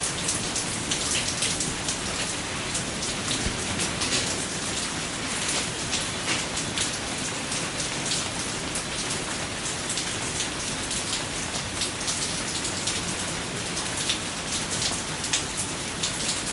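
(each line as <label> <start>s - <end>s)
Calm rain is falling. 0.0s - 16.5s
Water dripping. 0.3s - 15.1s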